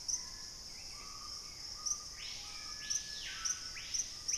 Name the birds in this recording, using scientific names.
Turdus hauxwelli, Lipaugus vociferans, Formicarius analis